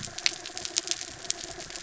{"label": "anthrophony, mechanical", "recorder": "SoundTrap 300"}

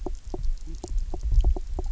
{"label": "biophony, knock croak", "recorder": "SoundTrap 300"}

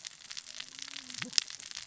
{"label": "biophony, cascading saw", "recorder": "SoundTrap 600 or HydroMoth"}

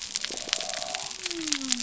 {"label": "biophony", "recorder": "SoundTrap 300"}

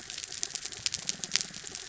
{"label": "biophony", "recorder": "SoundTrap 300"}
{"label": "anthrophony, mechanical", "recorder": "SoundTrap 300"}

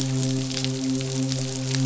{"label": "biophony, midshipman", "recorder": "SoundTrap 500"}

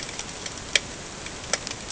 {"label": "ambient", "recorder": "HydroMoth"}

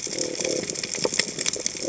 {"label": "biophony", "recorder": "HydroMoth"}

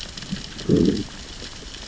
{"label": "biophony, growl", "recorder": "SoundTrap 600 or HydroMoth"}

